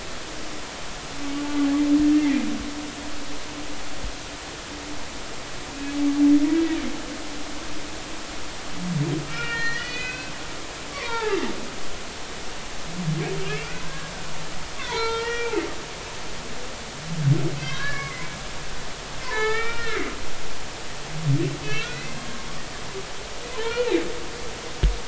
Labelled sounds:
2.1	2.4	humpback whale, 1.8 to 2.2 kHz
9.3	10.3	humpback whale, 1.3 to 4.5 kHz
10.8	11.4	humpback whale, 0.80 to 2.6 kHz
13.4	14.1	humpback whale, 1.5 to 2.8 kHz
14.8	15.5	humpback whale, 0.83 to 5.2 kHz
17.6	18.1	humpback whale, 0.99 to 4.0 kHz
18.8	20.1	humpback whale, 0.83 to 3.6 kHz
21.6	22.2	humpback whale, 1.2 to 2.8 kHz
23.5	23.9	humpback whale, 0.83 to 2.5 kHz

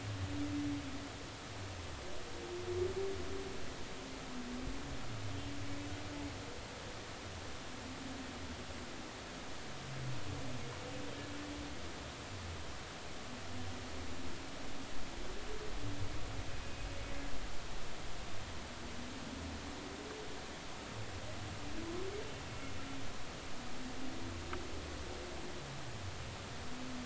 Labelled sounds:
16.6	16.9	humpback whale, 2.4 to 2.6 kHz

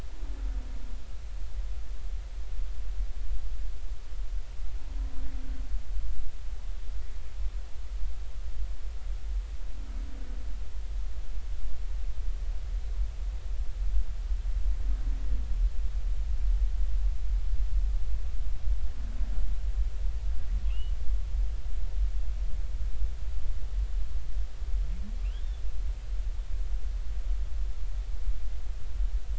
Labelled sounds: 20.7	20.9	humpback whale, 2.5 to 3.0 kHz
25.3	25.6	humpback whale, 2.9 to 3.7 kHz

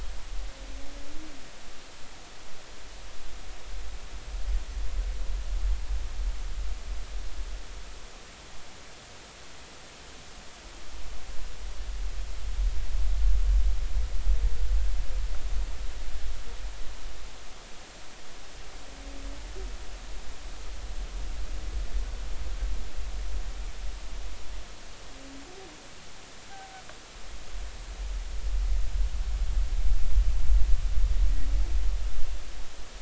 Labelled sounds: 26.5	26.8	humpback whale, 0.80 to 0.83 kHz

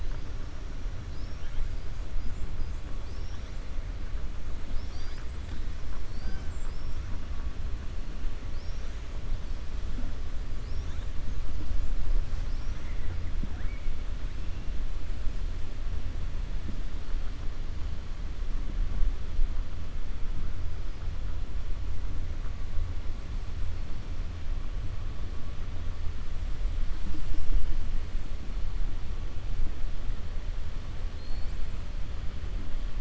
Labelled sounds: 8.4	9.0	killer whale, 4.3 to 6.7 kHz
31.1	31.6	killer whale, 4.1 to 5.4 kHz

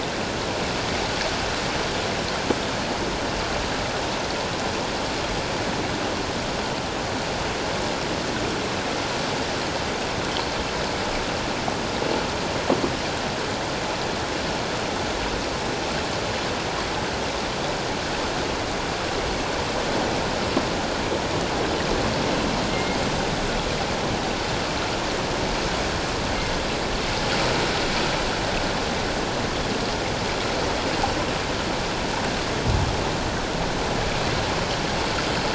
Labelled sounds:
22.7	23.0	killer whale, northern resident, G clan, 2.0 to 2.2 kHz

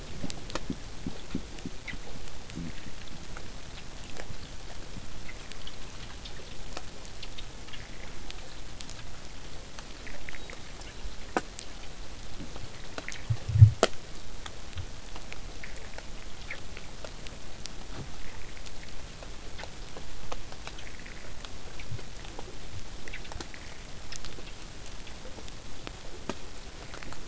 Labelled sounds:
0.0	5.0	vessel noise, 0 to 8.0 kHz
10.3	11.6	killer whale, southern resident, whistle, 3.5 to 4.4 kHz

